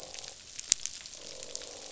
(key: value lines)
label: biophony, croak
recorder: SoundTrap 500